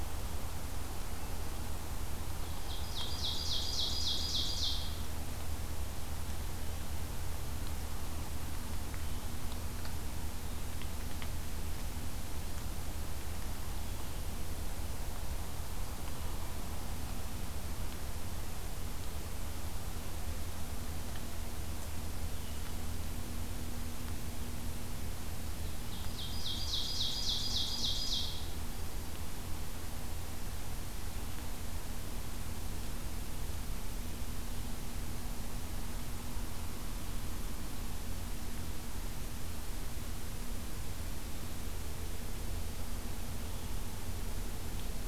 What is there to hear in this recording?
Ovenbird